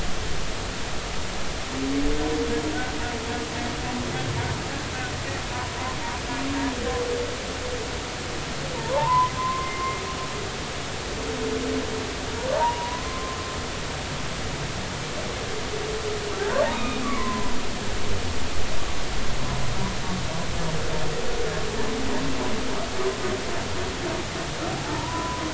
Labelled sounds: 8.7	10.0	humpback whale, 0.83 to 2.1 kHz
12.5	13.4	humpback whale, 0.86 to 1.1 kHz
16.7	17.5	humpback whale, 0.93 to 2.6 kHz
24.7	25.4	humpback whale, 0.80 to 1.1 kHz

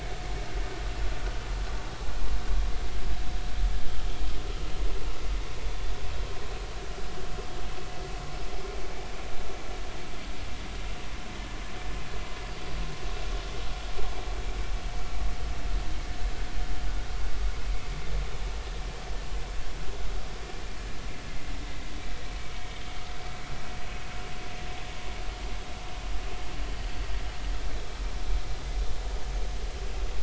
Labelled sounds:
22.5	22.8	vessel noise, 2.0 to 2.3 kHz

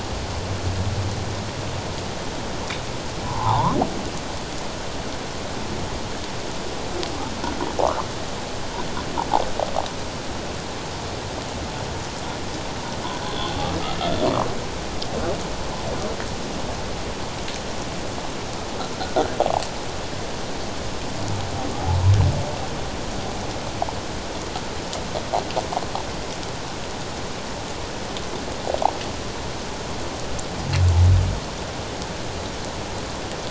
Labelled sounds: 3.2	3.8	humpback whale, 0.78 to 1.3 kHz
7.8	8.1	humpback whale, 0.78 to 1.4 kHz

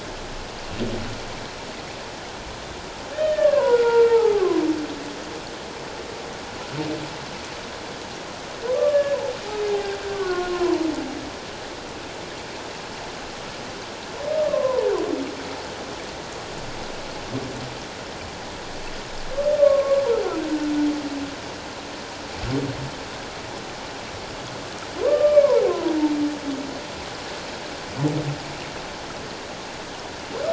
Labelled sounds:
3.1	4.6	humpback whale, 0.78 to 3.0 kHz
8.7	9.2	humpback whale, 1.1 to 1.8 kHz
10.1	10.9	humpback whale, 0.88 to 1.6 kHz
14.3	14.9	humpback whale, 0.84 to 1.3 kHz
19.6	20.0	humpback whale, 1.0 to 1.2 kHz
25.0	25.9	humpback whale, 0.94 to 1.2 kHz

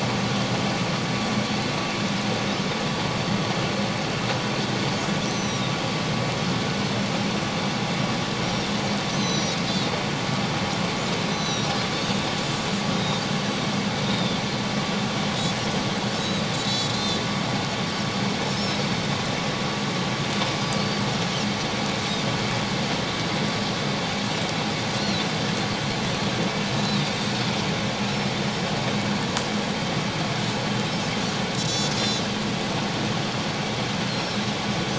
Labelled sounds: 5.2	5.8	Pacific white-sided dolphin, 3.6 to 6.2 kHz
9.1	9.6	Pacific white-sided dolphin, 3.8 to 6.3 kHz
11.3	11.7	Pacific white-sided dolphin, 3.7 to 6.1 kHz
12.9	14.4	Pacific white-sided dolphin, 3.4 to 3.8 kHz
16.2	17.2	Pacific white-sided dolphin, 3.8 to 7.5 kHz
20.8	21.0	Pacific white-sided dolphin, 4.3 to 4.7 kHz
25.0	25.2	Pacific white-sided dolphin, 3.9 to 4.4 kHz
26.8	27.3	Pacific white-sided dolphin, 3.6 to 4.1 kHz
31.6	32.2	Pacific white-sided dolphin, 4.9 to 7.0 kHz

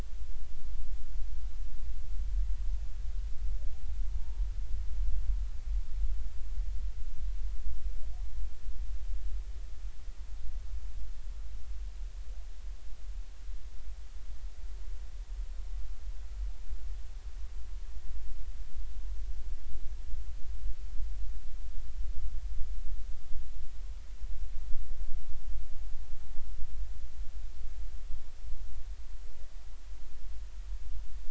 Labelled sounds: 4.1	4.5	humpback whale, 0.86 to 0.99 kHz
26.2	26.5	humpback whale, 0.83 to 1.1 kHz

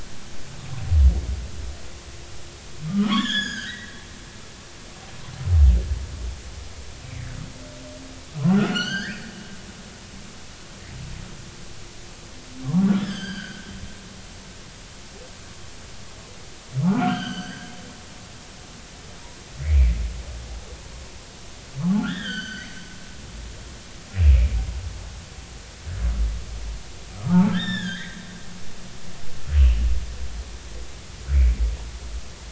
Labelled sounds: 2.9	4.0	humpback whale, 0.99 to 7.0 kHz
8.5	9.3	humpback whale, 1.2 to 6.5 kHz
12.6	13.7	humpback whale, 0.86 to 4.9 kHz
16.9	17.7	humpback whale, 1.2 to 6.1 kHz
19.6	20.0	humpback whale, 1.8 to 2.6 kHz
21.9	22.7	humpback whale, 1.3 to 6.5 kHz
24.1	24.5	humpback whale, 2.2 to 2.8 kHz
27.2	28.2	humpback whale, 0.80 to 7.4 kHz
29.6	29.9	humpback whale, 2.5 to 3.1 kHz

